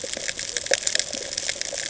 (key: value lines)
label: ambient
recorder: HydroMoth